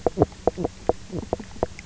{"label": "biophony, knock croak", "recorder": "SoundTrap 300"}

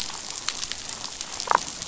{"label": "biophony, damselfish", "recorder": "SoundTrap 500"}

